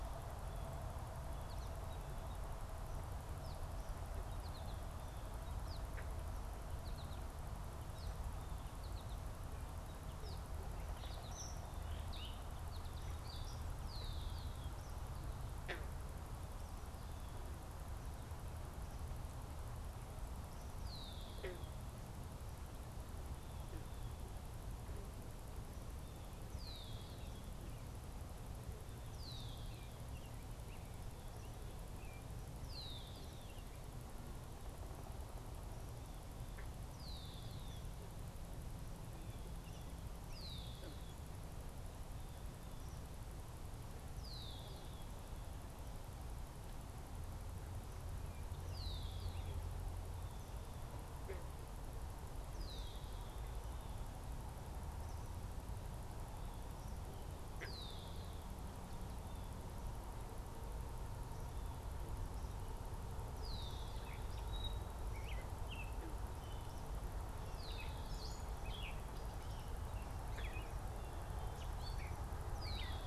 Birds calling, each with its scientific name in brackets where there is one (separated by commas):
American Robin (Turdus migratorius), Red-winged Blackbird (Agelaius phoeniceus), Gray Catbird (Dumetella carolinensis), American Goldfinch (Spinus tristis)